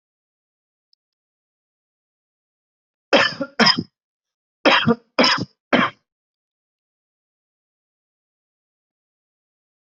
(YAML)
expert_labels:
- quality: good
  cough_type: dry
  dyspnea: false
  wheezing: false
  stridor: false
  choking: false
  congestion: false
  nothing: true
  diagnosis: COVID-19
  severity: unknown
age: 30
gender: male
respiratory_condition: false
fever_muscle_pain: false
status: symptomatic